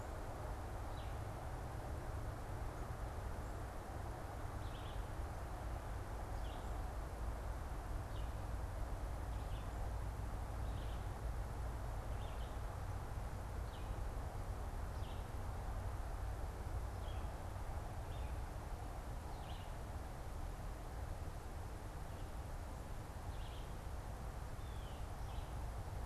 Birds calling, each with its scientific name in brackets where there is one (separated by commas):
Blue Jay (Cyanocitta cristata), Red-eyed Vireo (Vireo olivaceus)